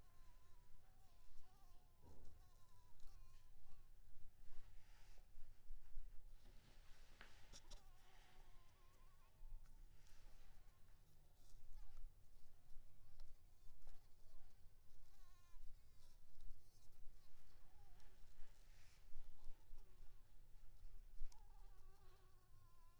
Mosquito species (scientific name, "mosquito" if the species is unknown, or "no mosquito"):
Anopheles maculipalpis